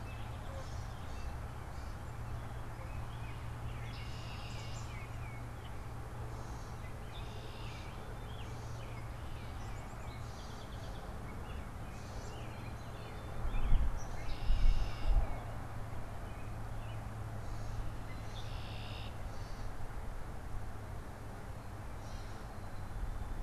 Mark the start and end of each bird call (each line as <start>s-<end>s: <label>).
0.0s-2.8s: Gray Catbird (Dumetella carolinensis)
3.6s-4.9s: Red-winged Blackbird (Agelaius phoeniceus)
4.4s-5.8s: Tufted Titmouse (Baeolophus bicolor)
6.6s-8.1s: Red-winged Blackbird (Agelaius phoeniceus)
9.1s-10.4s: Tufted Titmouse (Baeolophus bicolor)
9.2s-11.4s: Song Sparrow (Melospiza melodia)
11.6s-14.2s: Gray Catbird (Dumetella carolinensis)
14.1s-15.3s: Red-winged Blackbird (Agelaius phoeniceus)
14.5s-15.6s: Tufted Titmouse (Baeolophus bicolor)
16.0s-17.3s: American Robin (Turdus migratorius)
17.9s-19.4s: Red-winged Blackbird (Agelaius phoeniceus)
21.9s-22.6s: Gray Catbird (Dumetella carolinensis)